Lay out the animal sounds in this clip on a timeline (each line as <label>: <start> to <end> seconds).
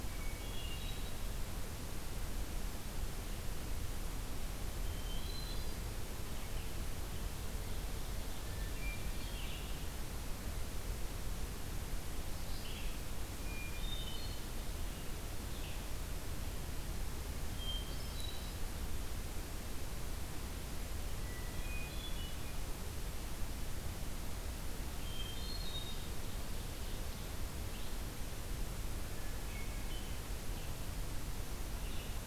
Hermit Thrush (Catharus guttatus): 0.0 to 1.3 seconds
Hermit Thrush (Catharus guttatus): 4.7 to 5.9 seconds
Red-eyed Vireo (Vireo olivaceus): 6.2 to 16.0 seconds
Ovenbird (Seiurus aurocapilla): 7.1 to 8.8 seconds
Hermit Thrush (Catharus guttatus): 8.4 to 9.5 seconds
Hermit Thrush (Catharus guttatus): 13.3 to 14.6 seconds
Hermit Thrush (Catharus guttatus): 17.4 to 18.7 seconds
Hermit Thrush (Catharus guttatus): 21.0 to 22.6 seconds
Hermit Thrush (Catharus guttatus): 24.9 to 26.1 seconds
Ovenbird (Seiurus aurocapilla): 25.5 to 27.3 seconds
Red-eyed Vireo (Vireo olivaceus): 27.6 to 32.3 seconds
Hermit Thrush (Catharus guttatus): 29.1 to 30.2 seconds